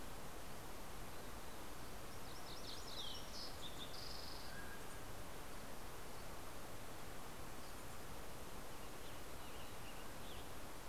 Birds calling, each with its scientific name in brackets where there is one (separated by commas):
Western Tanager (Piranga ludoviciana), Fox Sparrow (Passerella iliaca), MacGillivray's Warbler (Geothlypis tolmiei), Mountain Quail (Oreortyx pictus)